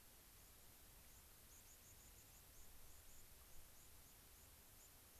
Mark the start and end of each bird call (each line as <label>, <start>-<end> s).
White-crowned Sparrow (Zonotrichia leucophrys), 1.0-5.2 s